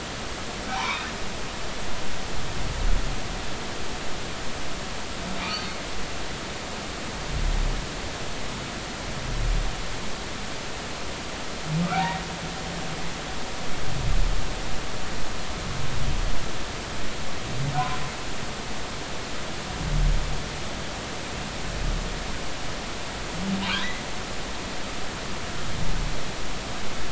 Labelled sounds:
0.7	1.1	humpback whale, 0.80 to 2.7 kHz
11.9	12.2	humpback whale, 0.80 to 2.0 kHz

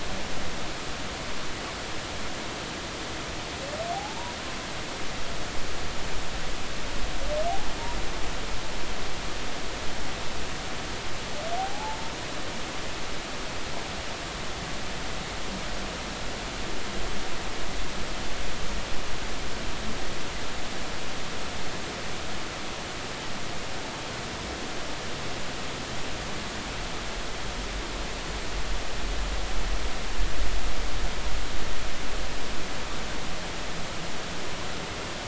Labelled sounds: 11.6	12.0	humpback whale, 0.80 to 0.93 kHz

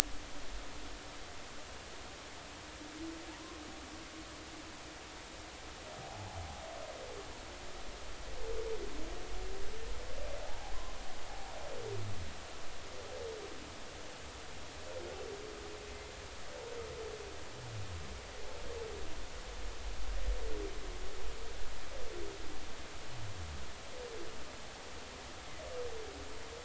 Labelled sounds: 3.3	3.6	humpback whale, 0.83 to 1.1 kHz
6.0	6.4	humpback whale, 0.80 to 0.99 kHz
10.5	10.8	humpback whale, 0.80 to 0.99 kHz
11.3	11.5	humpback whale, 0.80 to 0.96 kHz

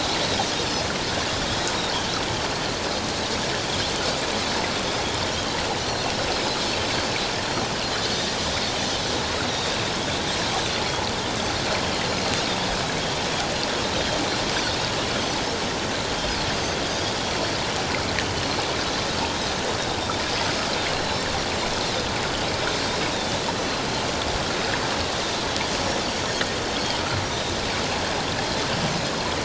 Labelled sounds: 5.8	6.1	Pacific white-sided dolphin, 4.0 to 4.5 kHz
9.5	9.8	Pacific white-sided dolphin, 3.6 to 3.9 kHz
16.5	17.1	Pacific white-sided dolphin, 4.6 to 5.0 kHz
20.9	21.2	Pacific white-sided dolphin, 3.9 to 4.3 kHz
27.3	27.5	Pacific white-sided dolphin, 3.6 to 3.8 kHz

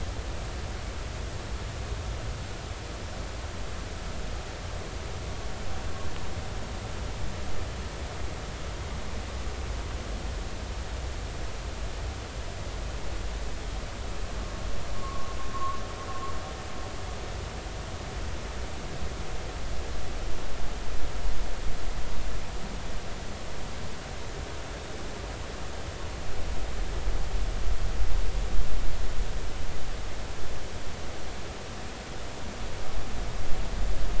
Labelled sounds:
15.0	15.8	vessel noise, 1.0 to 1.2 kHz

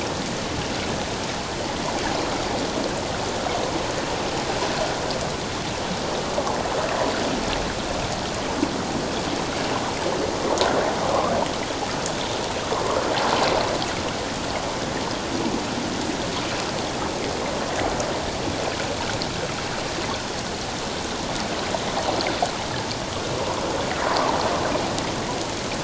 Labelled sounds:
11.1	11.3	water noise, 0.97 to 1.3 kHz

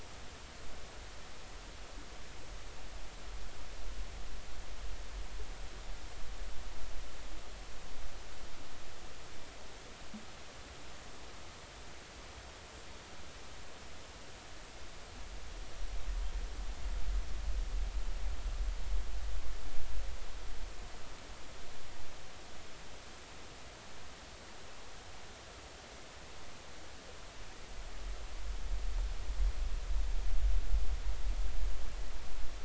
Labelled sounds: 15.6	16.0	killer whale, northern resident, 5.6 to 5.8 kHz

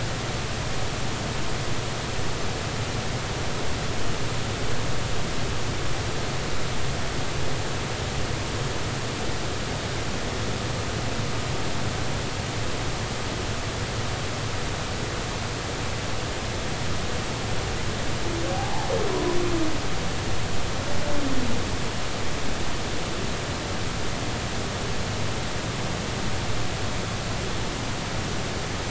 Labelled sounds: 18.5	19.4	humpback whale, 0.80 to 1.1 kHz

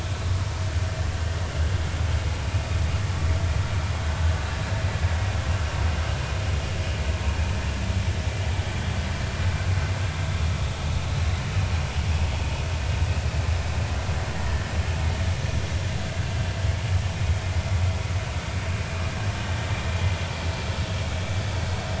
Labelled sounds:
14.3	14.6	vessel noise, 1.7 to 1.9 kHz

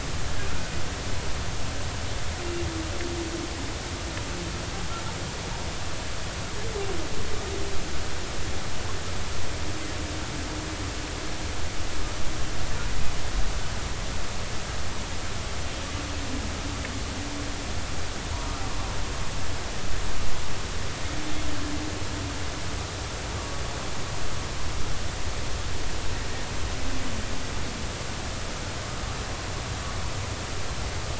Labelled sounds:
23.4	23.6	humpback whale, 1.1 to 1.2 kHz

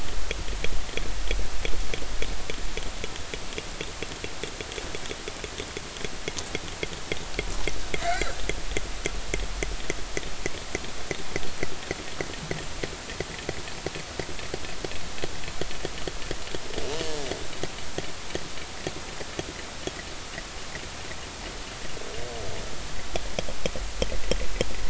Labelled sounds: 8.0	8.4	killer whale, northern resident, G clan, 1.3 to 2.4 kHz

